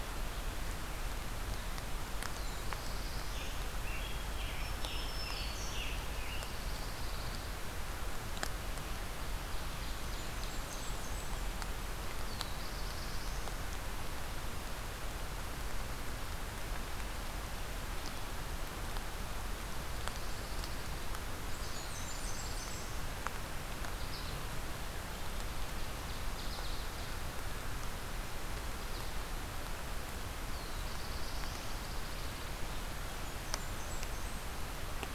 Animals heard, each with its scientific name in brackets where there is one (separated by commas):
American Goldfinch (Spinus tristis), Black-throated Green Warbler (Setophaga virens), Blackburnian Warbler (Setophaga fusca), Pine Warbler (Setophaga pinus), Black-throated Blue Warbler (Setophaga caerulescens), Ovenbird (Seiurus aurocapilla), Scarlet Tanager (Piranga olivacea)